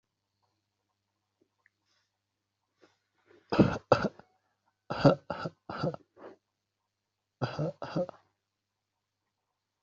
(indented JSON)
{
  "expert_labels": [
    {
      "quality": "good",
      "cough_type": "dry",
      "dyspnea": false,
      "wheezing": false,
      "stridor": false,
      "choking": false,
      "congestion": false,
      "nothing": true,
      "diagnosis": "healthy cough",
      "severity": "pseudocough/healthy cough"
    }
  ],
  "age": 25,
  "gender": "male",
  "respiratory_condition": false,
  "fever_muscle_pain": false,
  "status": "COVID-19"
}